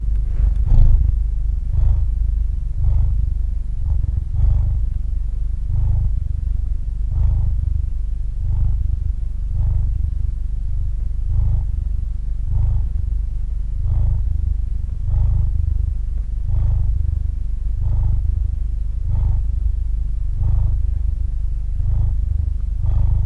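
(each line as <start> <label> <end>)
0.0 A cat is purring steadily. 23.3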